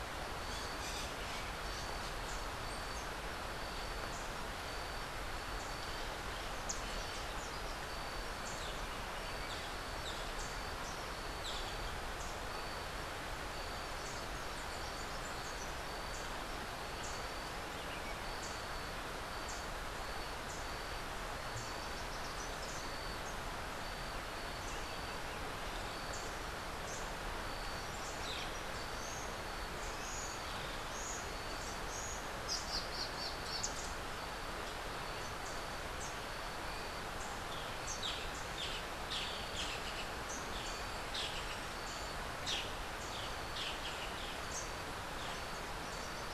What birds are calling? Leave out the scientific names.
Crimson-fronted Parakeet, Boat-billed Flycatcher, Rufous-capped Warbler, Buff-throated Saltator, Red-crowned Ant-Tanager